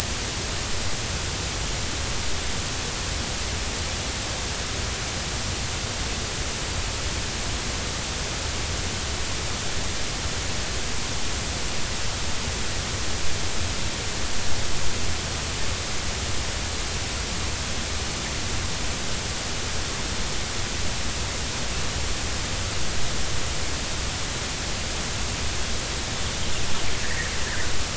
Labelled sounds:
27.0	27.3	fish, 1.6 to 2.0 kHz

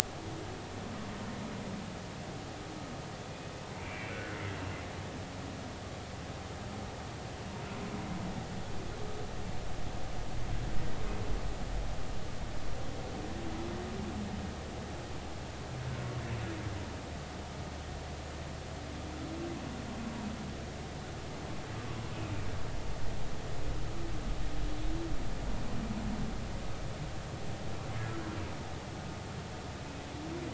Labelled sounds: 3.7	4.4	humpback whale, 1.3 to 2.8 kHz

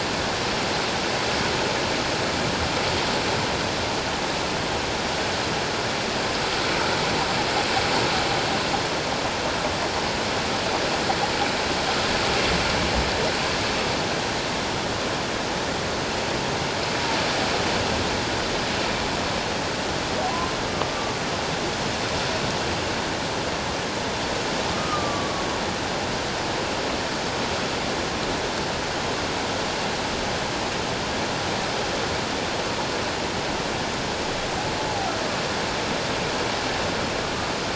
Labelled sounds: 20.3	20.6	humpback whale, 0.94 to 1.1 kHz
24.7	25.5	humpback whale, 1.1 to 1.3 kHz
34.9	35.1	humpback whale, 0.78 to 0.91 kHz

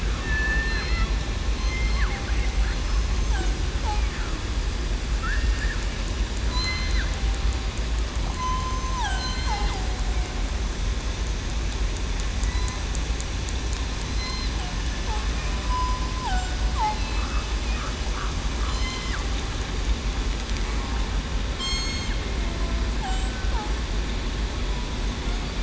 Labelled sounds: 0.3	1.0	killer whale, southern resident, 2.6 to 5.4 kHz
1.5	2.0	killer whale, southern resident, 3.1 to 8.0 kHz
5.2	5.6	killer whale, southern resident, 2.7 to 2.8 kHz
6.5	7.0	killer whale, southern resident, 2.0 to 4.2 kHz
8.3	9.2	killer whale, southern resident, 0.68 to 3.1 kHz
12.4	12.8	killer whale, southern resident, 1.9 to 2.1 kHz
14.1	14.5	killer whale, southern resident, 5.1 to 5.2 kHz
15.6	16.0	killer whale, southern resident, 0.96 to 1.0 kHz
18.7	19.1	killer whale, southern resident, 3.0 to 5.3 kHz
21.6	22.1	killer whale, southern resident, 2.1 to 8.0 kHz

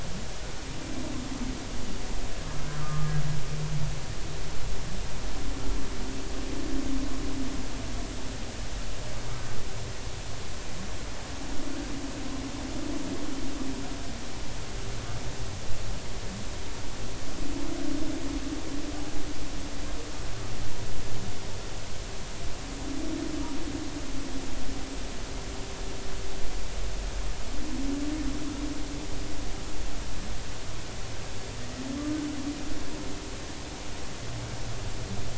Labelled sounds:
2.8	3.1	humpback whale, 1.0 to 1.3 kHz

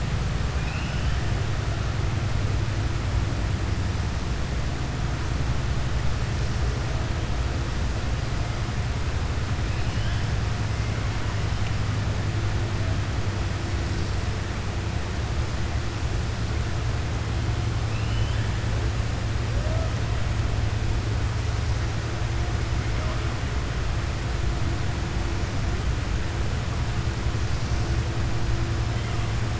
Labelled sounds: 17.8	18.5	killer whale, southern resident, 2.5 to 3.6 kHz

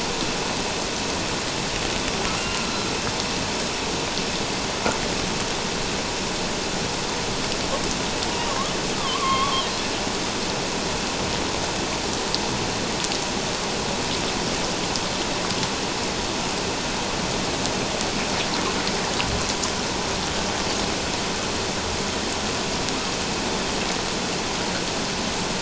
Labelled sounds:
2.2	2.6	killer whale, northern resident, A clan, AA subclan, 1.2 to 2.9 kHz
8.5	9.6	killer whale, northern resident, A clan, AA subclan, 0.97 to 3.4 kHz

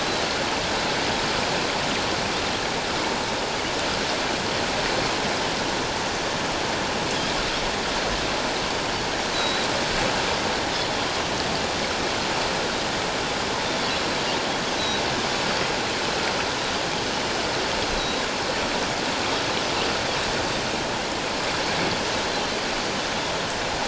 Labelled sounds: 9.3	9.7	Pacific white-sided dolphin, 3.8 to 4.1 kHz
14.8	15.0	Pacific white-sided dolphin, 3.8 to 4.0 kHz
17.8	18.3	Pacific white-sided dolphin, 3.8 to 4.3 kHz

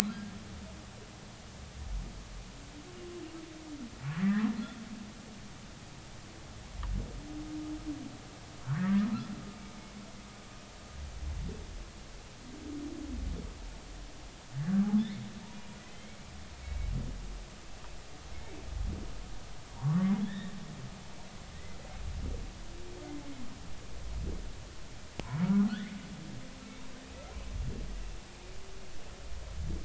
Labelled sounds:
0.1	0.3	humpback whale, 1.5 to 1.7 kHz
8.6	9.0	humpback whale, 1.3 to 2.0 kHz
15.9	16.9	humpback whale, 2.0 to 3.3 kHz
18.3	18.6	humpback whale, 2.1 to 2.3 kHz
19.7	20.6	humpback whale, 0.86 to 3.9 kHz
25.7	26.0	humpback whale, 1.2 to 2.2 kHz

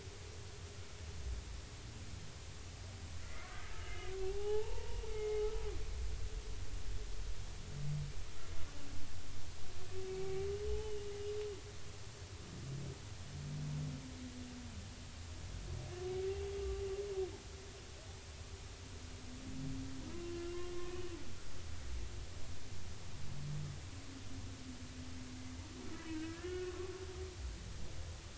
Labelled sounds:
3.2	5.4	humpback whale, 0.80 to 3.0 kHz
10.1	11.1	humpback whale, 0.80 to 3.1 kHz
20.1	21.0	humpback whale, 0.99 to 1.2 kHz
25.9	26.9	humpback whale, 1.1 to 3.0 kHz

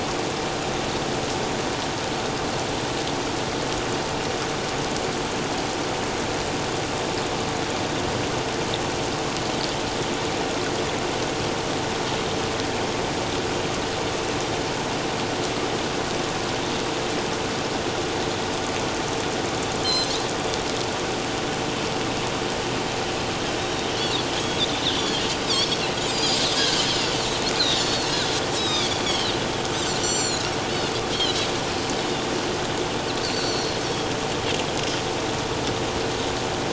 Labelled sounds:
19.8	20.1	Pacific white-sided dolphin, 4.0 to 6.2 kHz
23.6	24.6	Pacific white-sided dolphin, 3.2 to 3.8 kHz
25.0	27.1	Pacific white-sided dolphin, 1.5 to 7.8 kHz
27.6	29.3	Pacific white-sided dolphin, 3.0 to 5.5 kHz
30.0	30.5	Pacific white-sided dolphin, 3.9 to 7.4 kHz
31.1	31.5	Pacific white-sided dolphin, 2.9 to 4.4 kHz
32.0	32.2	Pacific white-sided dolphin, 3.4 to 3.8 kHz
33.2	33.8	Pacific white-sided dolphin, 4.1 to 4.7 kHz

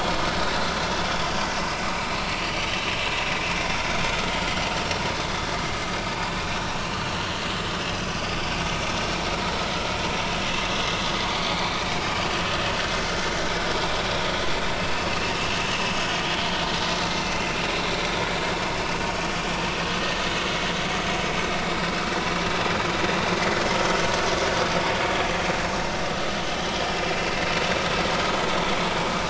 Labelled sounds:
5.2	5.5	vessel noise, 3.4 to 3.5 kHz
11.5	11.8	vessel noise, 2.1 to 2.4 kHz
23.2	23.5	vessel noise, 5.8 to 5.9 kHz
26.4	26.7	vessel noise, 2.9 to 3.1 kHz

